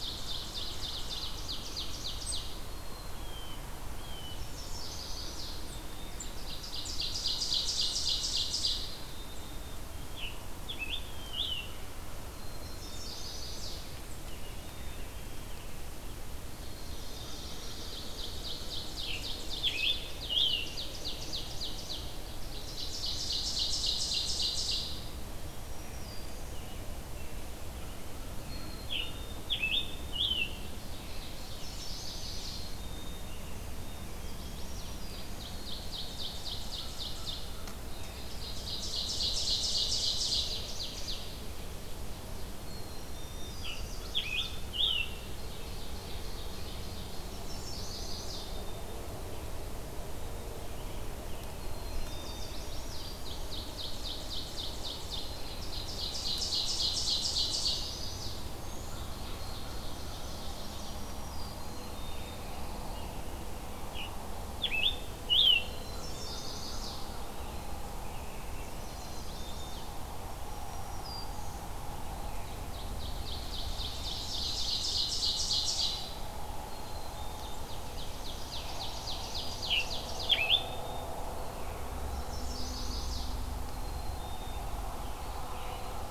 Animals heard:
American Crow (Corvus brachyrhynchos), Eastern Wood-Pewee (Contopus virens), Ovenbird (Seiurus aurocapilla), Chestnut-sided Warbler (Setophaga pensylvanica), Black-capped Chickadee (Poecile atricapillus), Scarlet Tanager (Piranga olivacea), Pine Warbler (Setophaga pinus), Blue Jay (Cyanocitta cristata), American Robin (Turdus migratorius), Black-throated Green Warbler (Setophaga virens)

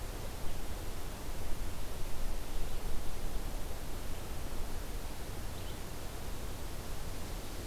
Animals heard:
Red-eyed Vireo (Vireo olivaceus)

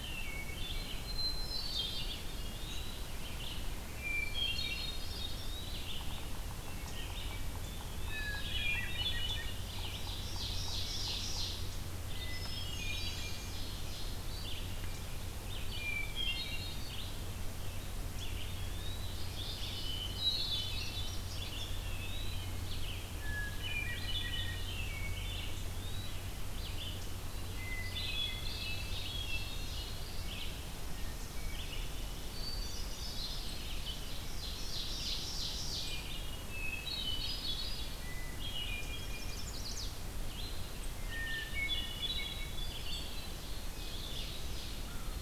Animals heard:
Ovenbird (Seiurus aurocapilla), Hermit Thrush (Catharus guttatus), Eastern Wood-Pewee (Contopus virens), Red-eyed Vireo (Vireo olivaceus), Chestnut-sided Warbler (Setophaga pensylvanica)

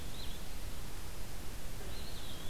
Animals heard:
Blue-headed Vireo (Vireo solitarius), Eastern Wood-Pewee (Contopus virens)

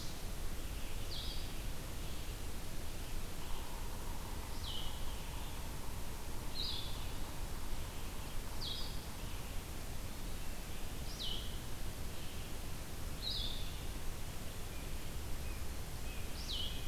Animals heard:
Blue-headed Vireo (Vireo solitarius), Yellow-bellied Sapsucker (Sphyrapicus varius)

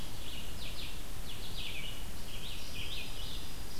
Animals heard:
American Goldfinch (Spinus tristis), Dark-eyed Junco (Junco hyemalis), Red-eyed Vireo (Vireo olivaceus)

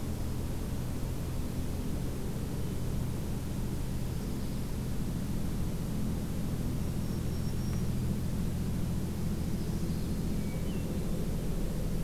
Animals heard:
Hermit Thrush (Catharus guttatus), Dark-eyed Junco (Junco hyemalis), Black-throated Green Warbler (Setophaga virens)

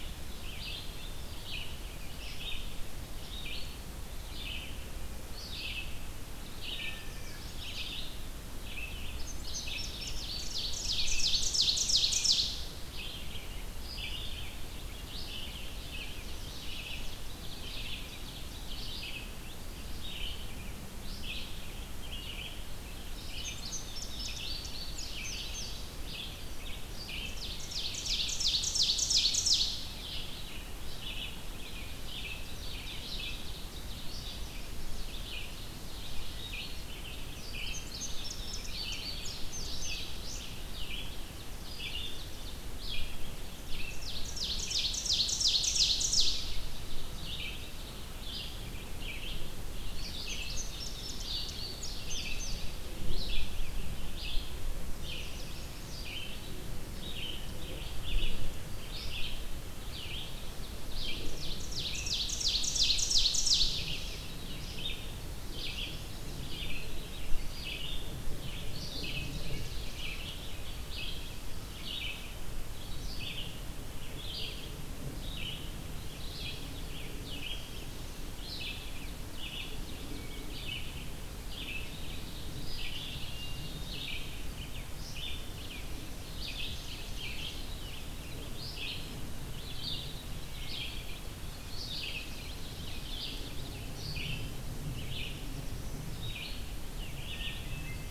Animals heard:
Black-throated Blue Warbler (Setophaga caerulescens), Hermit Thrush (Catharus guttatus), Indigo Bunting (Passerina cyanea), Chestnut-sided Warbler (Setophaga pensylvanica), Red-eyed Vireo (Vireo olivaceus), Mourning Warbler (Geothlypis philadelphia), Ovenbird (Seiurus aurocapilla)

